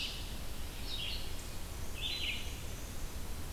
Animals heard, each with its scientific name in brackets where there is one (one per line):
Red-eyed Vireo (Vireo olivaceus)